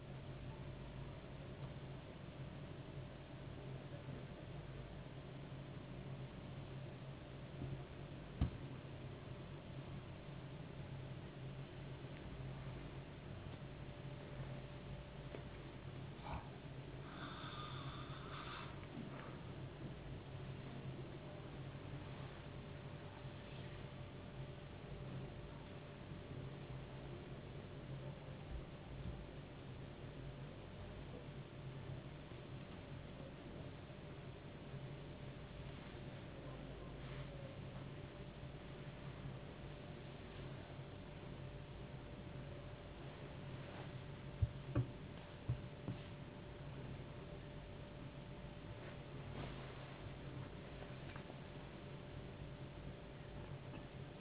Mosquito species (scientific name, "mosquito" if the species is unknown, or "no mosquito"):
no mosquito